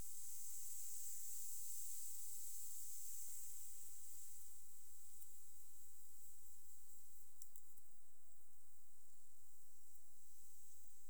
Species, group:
Tettigonia cantans, Orthoptera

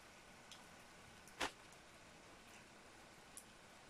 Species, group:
Gryllotalpa gryllotalpa, Orthoptera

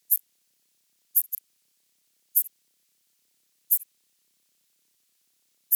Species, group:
Steropleurus andalusius, Orthoptera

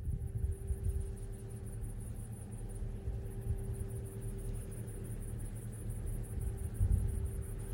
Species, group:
Tettigonia viridissima, Orthoptera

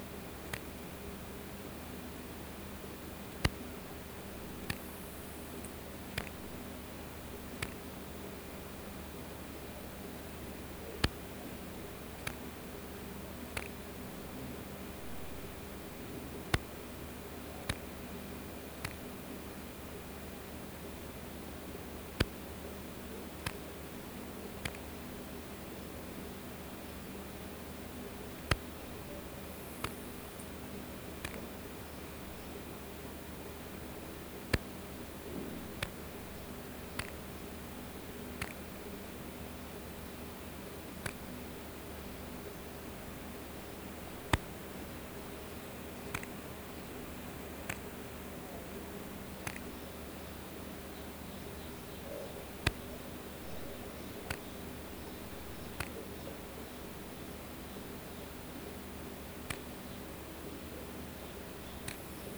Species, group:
Poecilimon hamatus, Orthoptera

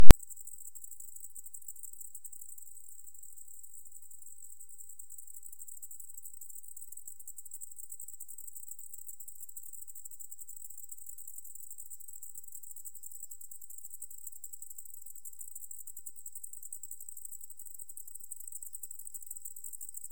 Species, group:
Decticus albifrons, Orthoptera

